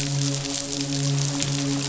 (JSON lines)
{"label": "biophony, midshipman", "recorder": "SoundTrap 500"}